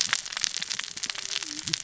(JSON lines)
{"label": "biophony, cascading saw", "recorder": "SoundTrap 600 or HydroMoth"}